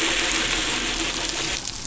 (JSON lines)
{"label": "anthrophony, boat engine", "recorder": "SoundTrap 500"}